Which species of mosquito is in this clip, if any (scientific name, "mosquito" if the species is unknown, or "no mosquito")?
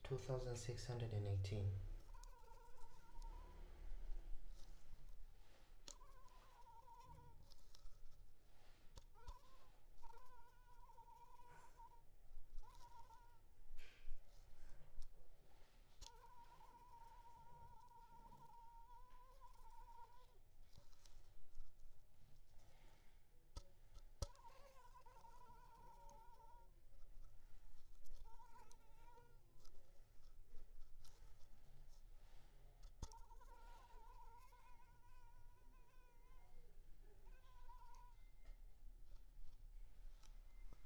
Anopheles arabiensis